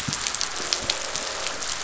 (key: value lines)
label: biophony
recorder: SoundTrap 500